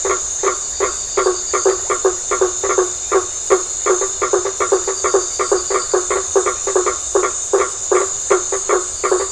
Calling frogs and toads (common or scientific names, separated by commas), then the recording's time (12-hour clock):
blacksmith tree frog
8:15pm